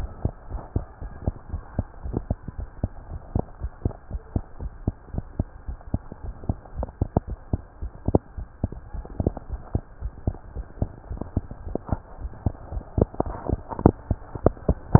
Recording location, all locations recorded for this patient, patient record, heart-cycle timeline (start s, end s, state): tricuspid valve (TV)
aortic valve (AV)+pulmonary valve (PV)+tricuspid valve (TV)+mitral valve (MV)
#Age: Child
#Sex: Female
#Height: 98.0 cm
#Weight: 15.9 kg
#Pregnancy status: False
#Murmur: Absent
#Murmur locations: nan
#Most audible location: nan
#Systolic murmur timing: nan
#Systolic murmur shape: nan
#Systolic murmur grading: nan
#Systolic murmur pitch: nan
#Systolic murmur quality: nan
#Diastolic murmur timing: nan
#Diastolic murmur shape: nan
#Diastolic murmur grading: nan
#Diastolic murmur pitch: nan
#Diastolic murmur quality: nan
#Outcome: Abnormal
#Campaign: 2015 screening campaign
0.00	0.47	unannotated
0.47	0.62	S1
0.62	0.72	systole
0.72	0.86	S2
0.86	0.99	diastole
0.99	1.12	S1
1.12	1.22	systole
1.22	1.36	S2
1.36	1.50	diastole
1.50	1.62	S1
1.62	1.74	systole
1.74	1.86	S2
1.86	2.04	diastole
2.04	2.20	S1
2.20	2.28	systole
2.28	2.40	S2
2.40	2.58	diastole
2.58	2.68	S1
2.68	2.80	systole
2.80	2.92	S2
2.92	3.10	diastole
3.10	3.20	S1
3.20	3.32	systole
3.32	3.44	S2
3.44	3.60	diastole
3.60	3.70	S1
3.70	3.84	systole
3.84	3.94	S2
3.94	4.10	diastole
4.10	4.20	S1
4.20	4.32	systole
4.32	4.44	S2
4.44	4.60	diastole
4.60	4.72	S1
4.72	4.86	systole
4.86	4.96	S2
4.96	5.14	diastole
5.14	5.26	S1
5.26	5.38	systole
5.38	5.48	S2
5.48	5.68	diastole
5.68	5.78	S1
5.78	5.92	systole
5.92	6.04	S2
6.04	6.24	diastole
6.24	6.36	S1
6.36	6.48	systole
6.48	6.58	S2
6.58	6.74	diastole
6.74	6.88	S1
6.88	6.98	systole
6.98	7.12	S2
7.12	7.26	diastole
7.26	7.38	S1
7.38	7.50	systole
7.50	7.64	S2
7.64	7.80	diastole
7.80	7.92	S1
7.92	8.04	systole
8.04	8.22	S2
8.22	8.35	diastole
8.35	8.48	S1
8.48	8.61	systole
8.61	8.76	S2
8.76	8.94	diastole
8.94	9.06	S1
9.06	9.18	systole
9.18	9.34	S2
9.34	9.48	diastole
9.48	9.62	S1
9.62	9.72	systole
9.72	9.84	S2
9.84	10.00	diastole
10.00	10.12	S1
10.12	10.24	systole
10.24	10.38	S2
10.38	10.54	diastole
10.54	10.66	S1
10.66	10.80	systole
10.80	10.92	S2
10.92	11.08	diastole
11.08	11.22	S1
11.22	11.32	systole
11.32	11.46	S2
11.46	11.64	diastole
11.64	11.76	S1
11.76	11.88	systole
11.88	12.02	S2
12.02	12.20	diastole
12.20	12.32	S1
12.32	12.42	systole
12.42	12.56	S2
12.56	12.72	diastole
12.72	12.84	S1
12.84	12.94	systole
12.94	13.08	S2
13.08	13.24	diastole
13.24	13.36	S1
13.36	13.48	systole
13.48	13.62	S2
13.62	14.99	unannotated